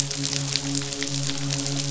{"label": "biophony, midshipman", "recorder": "SoundTrap 500"}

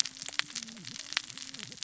{"label": "biophony, cascading saw", "recorder": "SoundTrap 600 or HydroMoth"}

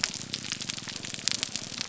{"label": "biophony, grouper groan", "recorder": "SoundTrap 300"}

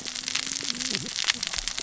{"label": "biophony, cascading saw", "recorder": "SoundTrap 600 or HydroMoth"}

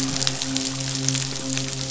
{"label": "biophony, midshipman", "recorder": "SoundTrap 500"}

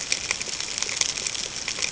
{"label": "ambient", "recorder": "HydroMoth"}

